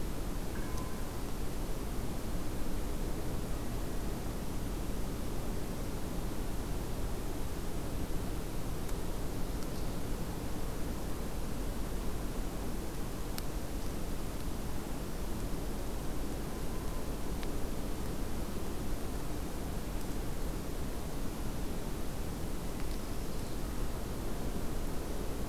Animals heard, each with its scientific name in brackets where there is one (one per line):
Magnolia Warbler (Setophaga magnolia)